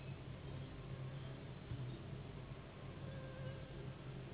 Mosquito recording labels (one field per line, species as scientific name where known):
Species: Anopheles gambiae s.s.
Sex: female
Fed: unfed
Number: one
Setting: insect culture